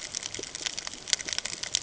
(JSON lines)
{"label": "ambient", "recorder": "HydroMoth"}